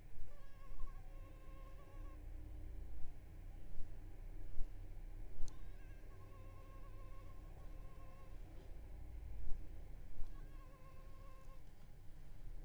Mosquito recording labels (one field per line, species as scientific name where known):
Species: Culex pipiens complex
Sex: female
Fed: unfed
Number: one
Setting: cup